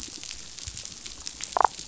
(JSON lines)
{"label": "biophony, damselfish", "recorder": "SoundTrap 500"}